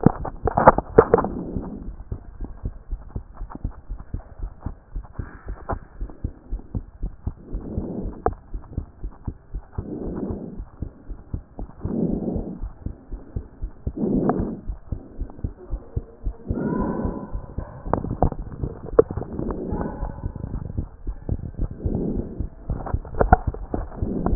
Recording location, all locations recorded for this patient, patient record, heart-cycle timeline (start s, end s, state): pulmonary valve (PV)
aortic valve (AV)+pulmonary valve (PV)+tricuspid valve (TV)+mitral valve (MV)
#Age: Child
#Sex: Male
#Height: 131.0 cm
#Weight: 24.9 kg
#Pregnancy status: False
#Murmur: Absent
#Murmur locations: nan
#Most audible location: nan
#Systolic murmur timing: nan
#Systolic murmur shape: nan
#Systolic murmur grading: nan
#Systolic murmur pitch: nan
#Systolic murmur quality: nan
#Diastolic murmur timing: nan
#Diastolic murmur shape: nan
#Diastolic murmur grading: nan
#Diastolic murmur pitch: nan
#Diastolic murmur quality: nan
#Outcome: Abnormal
#Campaign: 2014 screening campaign
0.08	0.18	systole
0.18	0.26	S2
0.26	0.40	diastole
0.40	0.54	S1
0.54	0.62	systole
0.62	0.76	S2
0.76	0.94	diastole
0.94	1.06	S1
1.06	1.12	systole
1.12	1.22	S2
1.22	1.36	diastole
1.36	1.46	S1
1.46	1.54	systole
1.54	1.64	S2
1.64	1.84	diastole
1.84	1.96	S1
1.96	2.10	systole
2.10	2.20	S2
2.20	2.40	diastole
2.40	2.54	S1
2.54	2.64	systole
2.64	2.74	S2
2.74	2.90	diastole
2.90	3.02	S1
3.02	3.14	systole
3.14	3.24	S2
3.24	3.40	diastole
3.40	3.48	S1
3.48	3.62	systole
3.62	3.72	S2
3.72	3.90	diastole
3.90	3.98	S1
3.98	4.12	systole
4.12	4.22	S2
4.22	4.42	diastole
4.42	4.50	S1
4.50	4.64	systole
4.64	4.74	S2
4.74	4.94	diastole
4.94	5.04	S1
5.04	5.18	systole
5.18	5.28	S2
5.28	5.48	diastole
5.48	5.56	S1
5.56	5.70	systole
5.70	5.80	S2
5.80	6.00	diastole
6.00	6.10	S1
6.10	6.20	systole
6.20	6.34	S2
6.34	6.52	diastole
6.52	6.62	S1
6.62	6.76	systole
6.76	6.86	S2
6.86	7.02	diastole
7.02	7.12	S1
7.12	7.22	systole
7.22	7.36	S2
7.36	7.52	diastole
7.52	7.64	S1
7.64	7.74	systole
7.74	7.88	S2
7.88	8.02	diastole
8.02	8.14	S1
8.14	8.24	systole
8.24	8.36	S2
8.36	8.54	diastole
8.54	8.62	S1
8.62	8.76	systole
8.76	8.86	S2
8.86	9.04	diastole
9.04	9.12	S1
9.12	9.26	systole
9.26	9.34	S2
9.34	9.54	diastole
9.54	9.62	S1
9.62	9.74	systole
9.74	9.86	S2
9.86	10.02	diastole
10.02	10.18	S1
10.18	10.28	systole
10.28	10.38	S2
10.38	10.54	diastole
10.54	10.66	S1
10.66	10.78	systole
10.78	10.88	S2
10.88	11.10	diastole
11.10	11.18	S1
11.18	11.32	systole
11.32	11.42	S2
11.42	11.60	diastole
11.60	11.68	S1
11.68	11.76	systole
11.76	11.80	S2
11.80	11.98	diastole
11.98	12.14	S1
12.14	12.28	systole
12.28	12.44	S2
12.44	12.60	diastole
12.60	12.72	S1
12.72	12.82	systole
12.82	12.94	S2
12.94	13.12	diastole
13.12	13.20	S1
13.20	13.32	systole
13.32	13.44	S2
13.44	13.62	diastole
13.62	13.70	S1
13.70	13.82	systole
13.82	13.94	S2
13.94	14.14	diastole
14.14	14.32	S1
14.32	14.38	systole
14.38	14.50	S2
14.50	14.66	diastole
14.66	14.78	S1
14.78	14.88	systole
14.88	14.98	S2
14.98	15.18	diastole
15.18	15.28	S1
15.28	15.40	systole
15.40	15.54	S2
15.54	15.70	diastole
15.70	15.80	S1
15.80	15.92	systole
15.92	16.04	S2
16.04	16.24	diastole
16.24	16.34	S1
16.34	16.46	systole
16.46	16.58	S2
16.58	16.72	diastole
16.72	16.88	S1
16.88	17.00	systole
17.00	17.16	S2
17.16	17.32	diastole
17.32	17.44	S1
17.44	17.56	systole
17.56	17.68	S2
17.68	17.88	diastole
17.88	18.02	S1
18.02	18.06	systole
18.06	18.20	S2
18.20	18.36	diastole
18.36	18.48	S1
18.48	18.60	systole
18.60	18.70	S2
18.70	18.92	diastole
18.92	19.06	S1
19.06	19.18	systole
19.18	19.28	S2
19.28	19.46	diastole
19.46	19.60	S1
19.60	19.70	systole
19.70	19.84	S2
19.84	20.00	diastole
20.00	20.12	S1
20.12	20.20	systole
20.20	20.32	S2
20.32	20.52	diastole
20.52	20.66	S1
20.66	20.76	systole
20.76	20.90	S2
20.90	21.06	diastole
21.06	21.18	S1
21.18	21.30	systole
21.30	21.42	S2
21.42	21.60	diastole
21.60	21.72	S1
21.72	21.82	systole
21.82	21.94	S2
21.94	22.08	diastole
22.08	22.26	S1
22.26	22.38	systole
22.38	22.50	S2
22.50	22.68	diastole
22.68	22.82	S1
22.82	22.92	systole
22.92	23.04	S2
23.04	23.22	diastole
23.22	23.40	S1
23.40	23.48	systole
23.48	23.58	S2
23.58	23.74	diastole
23.74	23.90	S1
23.90	24.00	systole
24.00	24.10	S2
24.10	24.24	diastole
24.24	24.35	S1